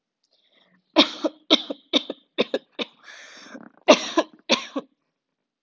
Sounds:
Cough